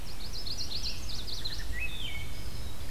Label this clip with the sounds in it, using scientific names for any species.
Setophaga pensylvanica, Vireo olivaceus, Mniotilta varia, Hylocichla mustelina, Setophaga caerulescens